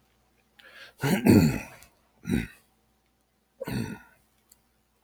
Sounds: Throat clearing